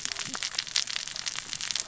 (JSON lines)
{"label": "biophony, cascading saw", "recorder": "SoundTrap 600 or HydroMoth"}